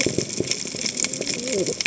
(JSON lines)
{"label": "biophony, cascading saw", "recorder": "HydroMoth"}